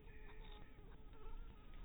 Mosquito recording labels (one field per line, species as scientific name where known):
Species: Anopheles harrisoni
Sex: female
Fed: unfed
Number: one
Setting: cup